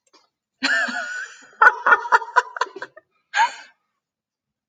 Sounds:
Laughter